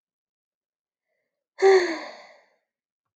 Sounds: Sigh